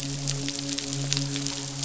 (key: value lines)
label: biophony, midshipman
recorder: SoundTrap 500